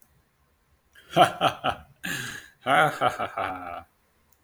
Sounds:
Laughter